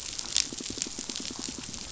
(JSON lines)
{"label": "biophony, pulse", "recorder": "SoundTrap 500"}